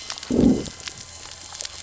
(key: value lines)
label: biophony, growl
recorder: SoundTrap 600 or HydroMoth